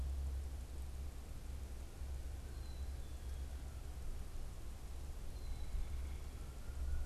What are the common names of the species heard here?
Black-capped Chickadee